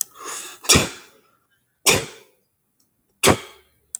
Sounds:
Sniff